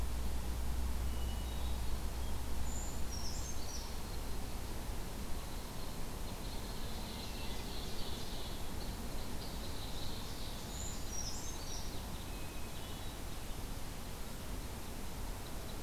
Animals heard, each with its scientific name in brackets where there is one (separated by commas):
Red Crossbill (Loxia curvirostra), Hermit Thrush (Catharus guttatus), Ovenbird (Seiurus aurocapilla), Brown Creeper (Certhia americana)